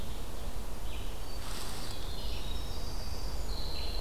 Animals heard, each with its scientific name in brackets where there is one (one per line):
Red-eyed Vireo (Vireo olivaceus)
Winter Wren (Troglodytes hiemalis)